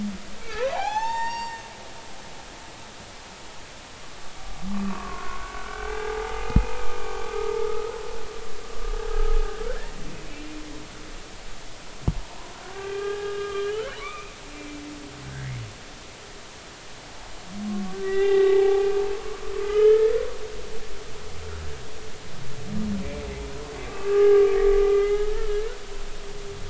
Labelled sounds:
0.4	1.6	humpback whale, 0.80 to 7.6 kHz
4.7	7.0	humpback whale, 0.80 to 2.6 kHz
9.0	9.4	humpback whale, 1.2 to 1.7 kHz
12.6	14.3	humpback whale, 1.0 to 3.2 kHz
15.2	15.5	humpback whale, 1.5 to 1.7 kHz
18.0	19.1	humpback whale, 0.80 to 3.6 kHz
19.6	20.2	humpback whale, 1.2 to 3.1 kHz
23.8	25.2	humpback whale, 0.80 to 2.7 kHz

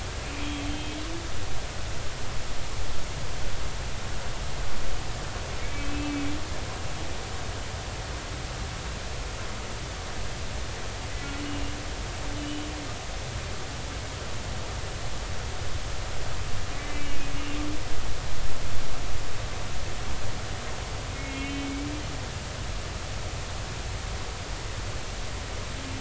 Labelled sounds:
0.7	1.0	humpback whale, 3.1 to 3.2 kHz
5.6	6.2	humpback whale, 2.1 to 2.7 kHz
11.4	11.7	humpback whale, 2.7 to 3.0 kHz
12.4	12.7	humpback whale, 2.9 to 3.1 kHz
16.7	17.2	humpback whale, 1.9 to 2.4 kHz
21.1	21.8	humpback whale, 2.1 to 3.1 kHz

